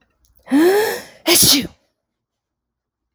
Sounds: Sneeze